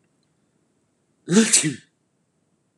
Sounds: Sneeze